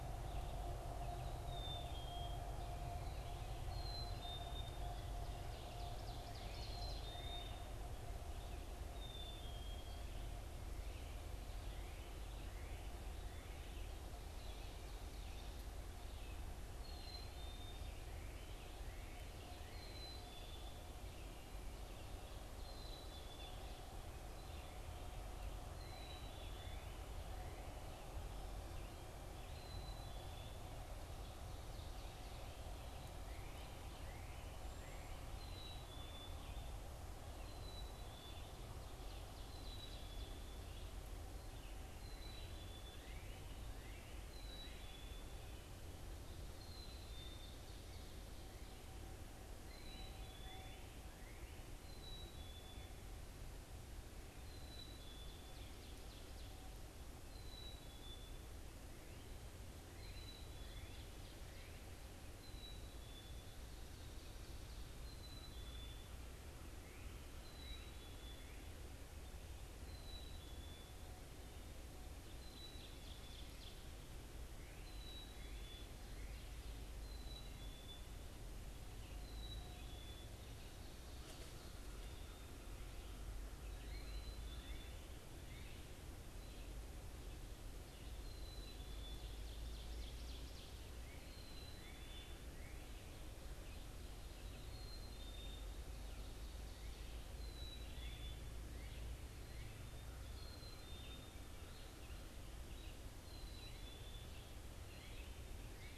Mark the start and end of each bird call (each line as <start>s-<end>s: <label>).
0.0s-10.3s: Black-capped Chickadee (Poecile atricapillus)
5.1s-7.3s: Ovenbird (Seiurus aurocapilla)
10.7s-25.0s: Red-eyed Vireo (Vireo olivaceus)
11.5s-13.9s: Northern Cardinal (Cardinalis cardinalis)
16.7s-68.8s: Black-capped Chickadee (Poecile atricapillus)
17.9s-20.0s: Northern Cardinal (Cardinalis cardinalis)
25.6s-27.9s: Northern Cardinal (Cardinalis cardinalis)
33.1s-35.4s: Northern Cardinal (Cardinalis cardinalis)
42.7s-44.9s: Northern Cardinal (Cardinalis cardinalis)
49.3s-51.6s: Northern Cardinal (Cardinalis cardinalis)
55.2s-57.1s: Ovenbird (Seiurus aurocapilla)
69.9s-106.0s: Black-capped Chickadee (Poecile atricapillus)
72.0s-74.0s: Ovenbird (Seiurus aurocapilla)
83.2s-106.0s: Red-eyed Vireo (Vireo olivaceus)
83.7s-86.0s: Northern Cardinal (Cardinalis cardinalis)
88.6s-90.9s: Ovenbird (Seiurus aurocapilla)